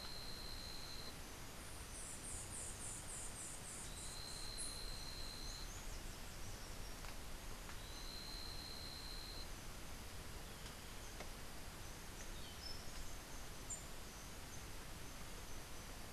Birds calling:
White-eared Ground-Sparrow (Melozone leucotis)

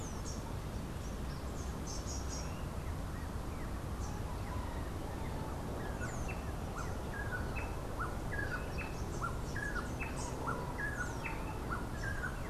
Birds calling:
Rufous-naped Wren (Campylorhynchus rufinucha), Rufous-capped Warbler (Basileuterus rufifrons)

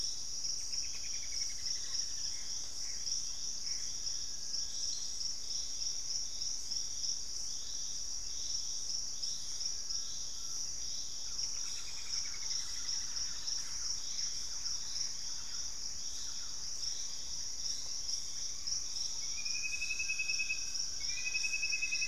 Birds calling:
Black-faced Antthrush (Formicarius analis), Cinnamon-rumped Foliage-gleaner (Philydor pyrrhodes), Straight-billed Woodcreeper (Dendroplex picus), Collared Trogon (Trogon collaris), unidentified bird, Gray Antbird (Cercomacra cinerascens), Thrush-like Wren (Campylorhynchus turdinus)

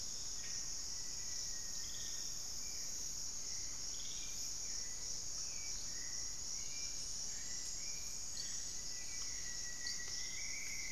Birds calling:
Rusty-fronted Tody-Flycatcher (Poecilotriccus latirostris), Hauxwell's Thrush (Turdus hauxwelli), Black-faced Antthrush (Formicarius analis), Rufous-fronted Antthrush (Formicarius rufifrons)

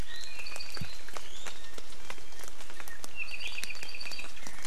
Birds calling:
Iiwi (Drepanis coccinea), Apapane (Himatione sanguinea)

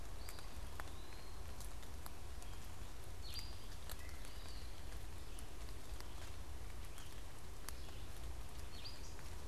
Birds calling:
Eastern Wood-Pewee (Contopus virens), unidentified bird

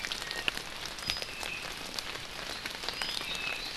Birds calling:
Iiwi (Drepanis coccinea), Apapane (Himatione sanguinea)

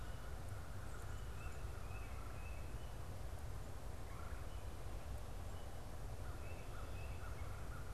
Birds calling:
American Crow (Corvus brachyrhynchos), Tufted Titmouse (Baeolophus bicolor), Red-bellied Woodpecker (Melanerpes carolinus)

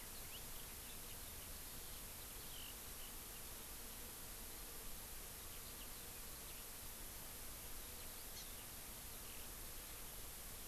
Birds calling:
Hawaii Amakihi (Chlorodrepanis virens), Eurasian Skylark (Alauda arvensis)

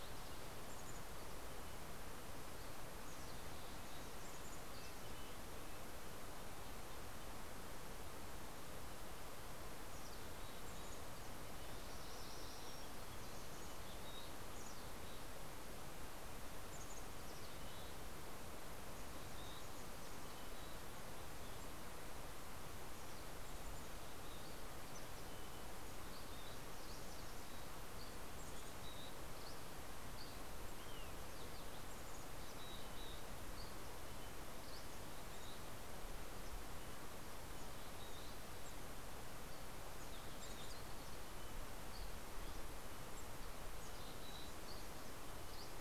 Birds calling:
Dusky Flycatcher (Empidonax oberholseri), MacGillivray's Warbler (Geothlypis tolmiei), Red-breasted Nuthatch (Sitta canadensis), Mountain Chickadee (Poecile gambeli)

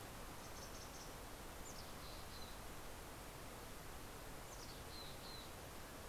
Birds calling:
Mountain Chickadee (Poecile gambeli)

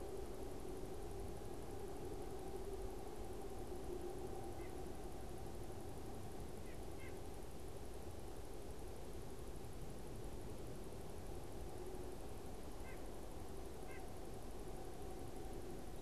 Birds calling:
White-breasted Nuthatch (Sitta carolinensis)

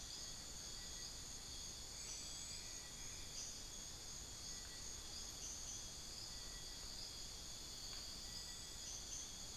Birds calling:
Bartlett's Tinamou (Crypturellus bartletti), Cinereous Tinamou (Crypturellus cinereus), unidentified bird

